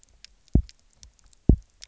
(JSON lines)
{"label": "biophony, double pulse", "recorder": "SoundTrap 300"}